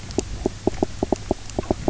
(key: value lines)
label: biophony, knock croak
recorder: SoundTrap 300